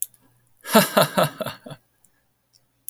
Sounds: Laughter